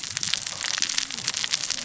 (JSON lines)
{"label": "biophony, cascading saw", "recorder": "SoundTrap 600 or HydroMoth"}